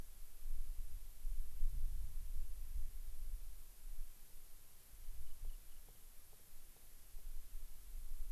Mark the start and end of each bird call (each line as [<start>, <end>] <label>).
[5.00, 5.80] Rock Wren (Salpinctes obsoletus)